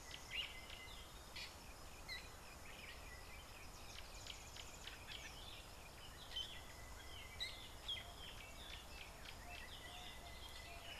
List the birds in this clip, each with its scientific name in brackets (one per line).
Fork-tailed Drongo (Dicrurus adsimilis)